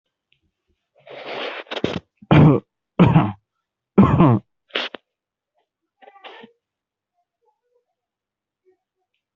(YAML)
expert_labels:
- quality: poor
  cough_type: unknown
  dyspnea: false
  wheezing: false
  stridor: false
  choking: false
  congestion: false
  nothing: true
  diagnosis: healthy cough
  severity: pseudocough/healthy cough
age: 23
gender: female
respiratory_condition: true
fever_muscle_pain: true
status: COVID-19